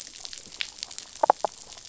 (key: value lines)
label: biophony
recorder: SoundTrap 500